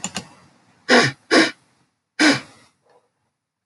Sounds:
Sniff